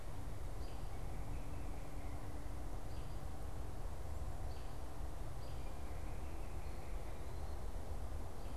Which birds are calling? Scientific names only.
Turdus migratorius, Hylocichla mustelina